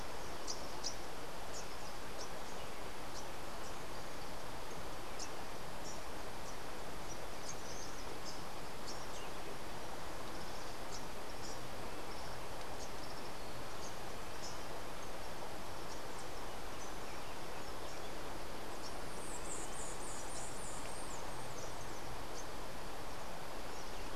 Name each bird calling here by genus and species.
Basileuterus rufifrons, Melozone leucotis